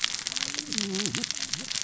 {"label": "biophony, cascading saw", "recorder": "SoundTrap 600 or HydroMoth"}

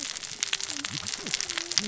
{"label": "biophony, cascading saw", "recorder": "SoundTrap 600 or HydroMoth"}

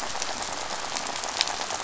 {"label": "biophony, rattle", "recorder": "SoundTrap 500"}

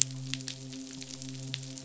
{"label": "biophony, midshipman", "recorder": "SoundTrap 500"}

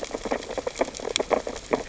{"label": "biophony, sea urchins (Echinidae)", "recorder": "SoundTrap 600 or HydroMoth"}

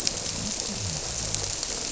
{"label": "biophony", "recorder": "SoundTrap 300"}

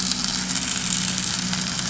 {"label": "anthrophony, boat engine", "recorder": "SoundTrap 500"}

